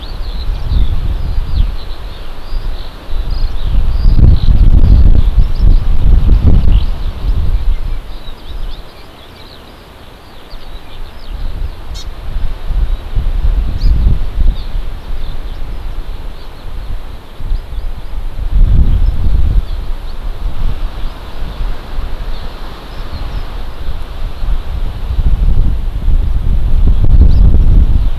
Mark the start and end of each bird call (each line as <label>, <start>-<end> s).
Eurasian Skylark (Alauda arvensis), 0.0-11.8 s
Hawaii Amakihi (Chlorodrepanis virens), 11.9-12.0 s
Hawaii Amakihi (Chlorodrepanis virens), 13.7-13.9 s
House Finch (Haemorhous mexicanus), 14.5-14.6 s
Eurasian Skylark (Alauda arvensis), 14.9-15.6 s
Hawaii Amakihi (Chlorodrepanis virens), 17.5-18.1 s
Hawaii Amakihi (Chlorodrepanis virens), 21.0-21.7 s
Eurasian Skylark (Alauda arvensis), 22.9-23.4 s
Hawaii Amakihi (Chlorodrepanis virens), 27.2-27.4 s
Eurasian Skylark (Alauda arvensis), 27.9-28.1 s